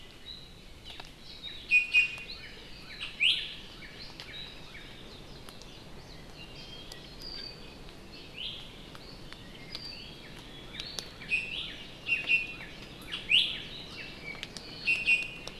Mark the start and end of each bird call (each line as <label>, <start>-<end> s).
Iiwi (Drepanis coccinea), 1.7-2.4 s
Northern Cardinal (Cardinalis cardinalis), 2.3-4.8 s
Iiwi (Drepanis coccinea), 3.2-3.4 s
Apapane (Himatione sanguinea), 6.3-7.8 s
Iiwi (Drepanis coccinea), 8.3-8.7 s
Northern Cardinal (Cardinalis cardinalis), 10.2-14.1 s
Iiwi (Drepanis coccinea), 11.2-11.7 s
Iiwi (Drepanis coccinea), 12.0-12.6 s
Iiwi (Drepanis coccinea), 13.2-13.5 s
Iiwi (Drepanis coccinea), 14.8-15.5 s